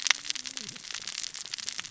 {"label": "biophony, cascading saw", "recorder": "SoundTrap 600 or HydroMoth"}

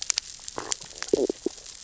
{"label": "biophony, stridulation", "recorder": "SoundTrap 600 or HydroMoth"}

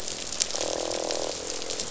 {"label": "biophony, croak", "recorder": "SoundTrap 500"}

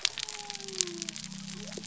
{"label": "biophony", "recorder": "SoundTrap 300"}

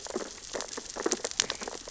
{"label": "biophony, sea urchins (Echinidae)", "recorder": "SoundTrap 600 or HydroMoth"}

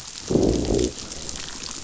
{"label": "biophony, growl", "recorder": "SoundTrap 500"}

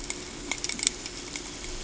{"label": "ambient", "recorder": "HydroMoth"}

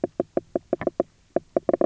{"label": "biophony, knock croak", "recorder": "SoundTrap 300"}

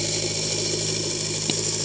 {"label": "anthrophony, boat engine", "recorder": "HydroMoth"}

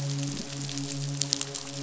{"label": "biophony, midshipman", "recorder": "SoundTrap 500"}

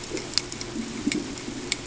{"label": "ambient", "recorder": "HydroMoth"}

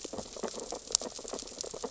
{"label": "biophony, sea urchins (Echinidae)", "recorder": "SoundTrap 600 or HydroMoth"}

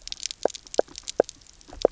{"label": "biophony, knock croak", "recorder": "SoundTrap 300"}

